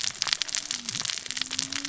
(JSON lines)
{"label": "biophony, cascading saw", "recorder": "SoundTrap 600 or HydroMoth"}